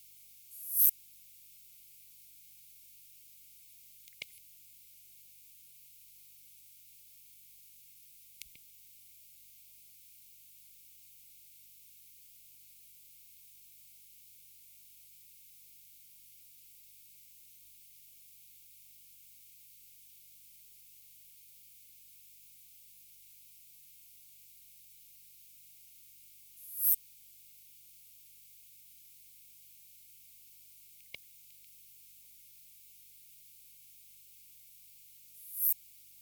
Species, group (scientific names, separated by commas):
Poecilimon hoelzeli, Orthoptera